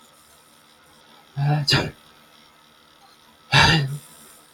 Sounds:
Sneeze